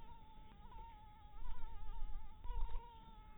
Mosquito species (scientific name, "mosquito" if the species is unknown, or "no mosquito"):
Anopheles harrisoni